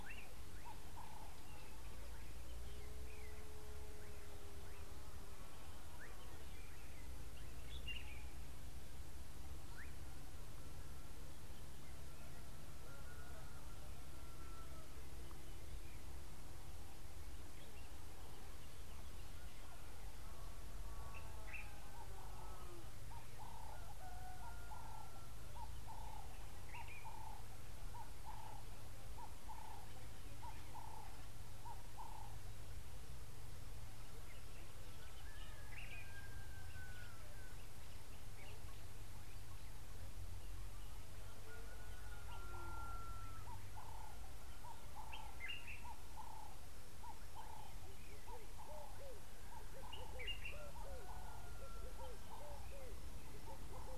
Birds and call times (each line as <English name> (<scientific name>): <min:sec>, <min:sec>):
Ring-necked Dove (Streptopelia capicola): 0:26.1, 0:47.4
Common Bulbul (Pycnonotus barbatus): 0:45.5
Red-eyed Dove (Streptopelia semitorquata): 0:48.8